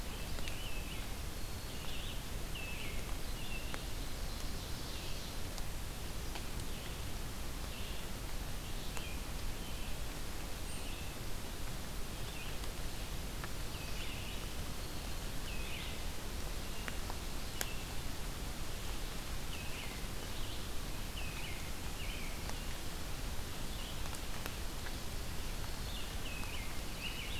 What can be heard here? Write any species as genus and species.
Vireo olivaceus, Turdus migratorius, Setophaga virens, Seiurus aurocapilla